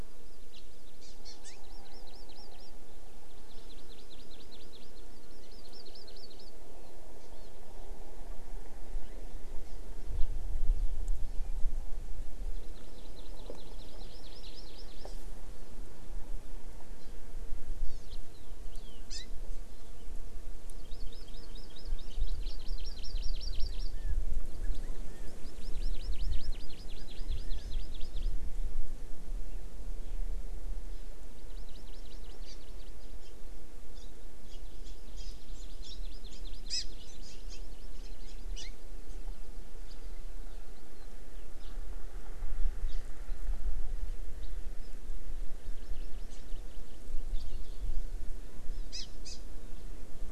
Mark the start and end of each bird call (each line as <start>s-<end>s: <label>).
0.5s-0.6s: House Finch (Haemorhous mexicanus)
1.0s-2.7s: Hawaii Amakihi (Chlorodrepanis virens)
3.3s-6.5s: Hawaii Amakihi (Chlorodrepanis virens)
7.3s-7.5s: Hawaii Amakihi (Chlorodrepanis virens)
12.5s-15.1s: Hawaii Amakihi (Chlorodrepanis virens)
17.0s-17.1s: Hawaii Amakihi (Chlorodrepanis virens)
17.9s-18.1s: Hawaii Amakihi (Chlorodrepanis virens)
18.1s-18.2s: House Finch (Haemorhous mexicanus)
18.7s-19.2s: Hawaii Amakihi (Chlorodrepanis virens)
20.8s-23.9s: Hawaii Amakihi (Chlorodrepanis virens)
23.7s-24.2s: Chinese Hwamei (Garrulax canorus)
24.6s-25.3s: Chinese Hwamei (Garrulax canorus)
25.3s-28.3s: Hawaii Amakihi (Chlorodrepanis virens)
25.8s-27.7s: Chinese Hwamei (Garrulax canorus)
30.9s-31.1s: Hawaii Amakihi (Chlorodrepanis virens)
31.4s-33.3s: Hawaii Amakihi (Chlorodrepanis virens)
33.9s-34.1s: Hawaii Amakihi (Chlorodrepanis virens)
34.5s-38.7s: Hawaii Amakihi (Chlorodrepanis virens)
39.1s-39.2s: Hawaii Amakihi (Chlorodrepanis virens)
39.9s-40.0s: House Finch (Haemorhous mexicanus)
41.6s-41.7s: Hawaii Amakihi (Chlorodrepanis virens)
42.9s-43.0s: Hawaii Amakihi (Chlorodrepanis virens)
45.4s-47.0s: Hawaii Amakihi (Chlorodrepanis virens)
47.3s-47.4s: House Finch (Haemorhous mexicanus)
48.9s-49.4s: Hawaii Amakihi (Chlorodrepanis virens)